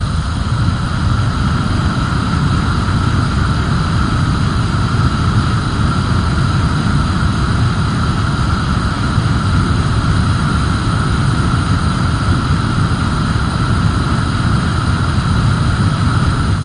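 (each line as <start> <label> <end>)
0.0 Gas is being released from a stove with a slow, steady blowing sound. 16.6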